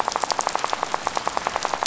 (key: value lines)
label: biophony, rattle
recorder: SoundTrap 500